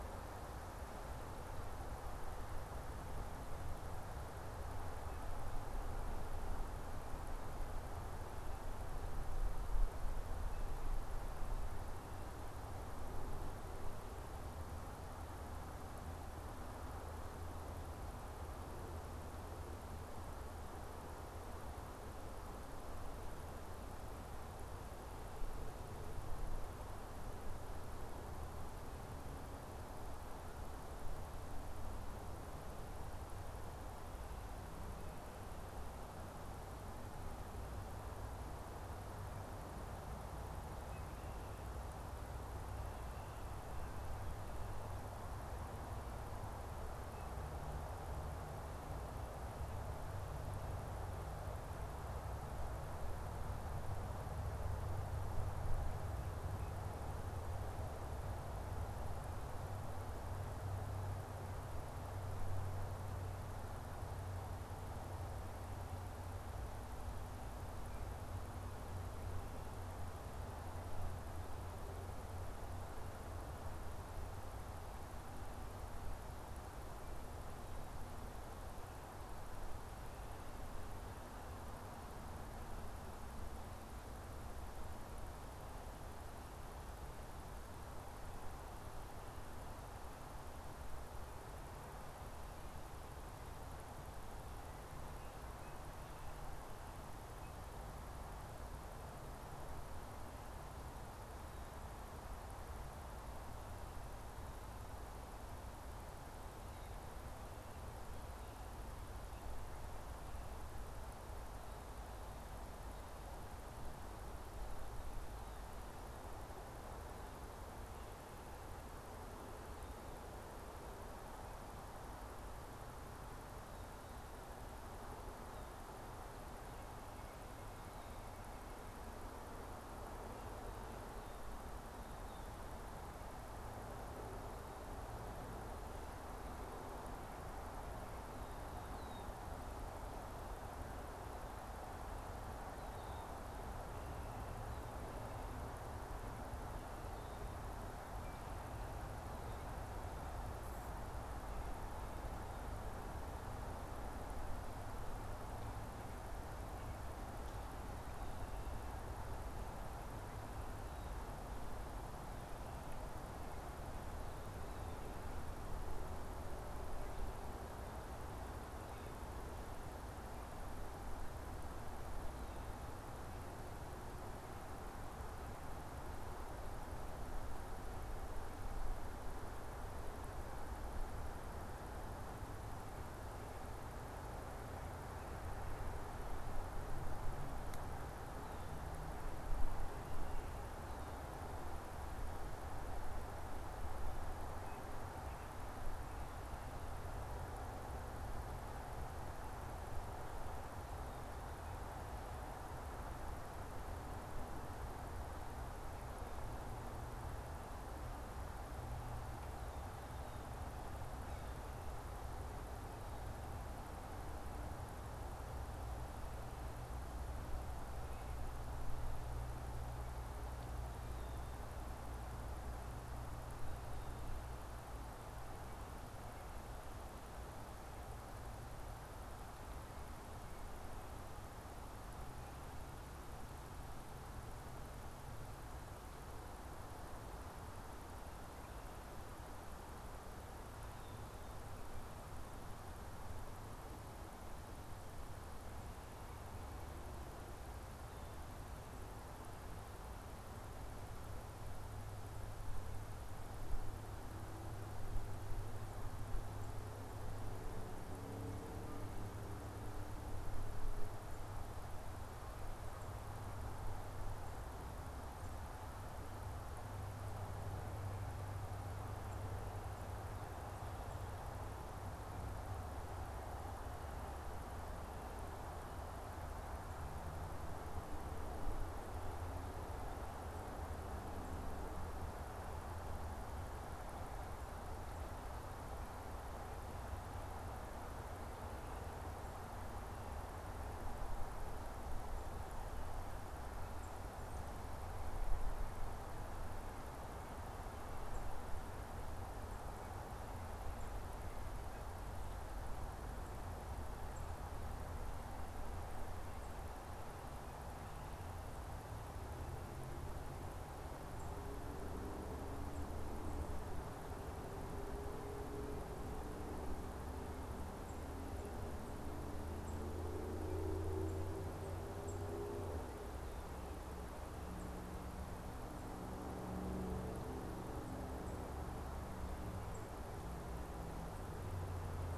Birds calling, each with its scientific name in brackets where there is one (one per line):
Tufted Titmouse (Baeolophus bicolor)
Red-winged Blackbird (Agelaius phoeniceus)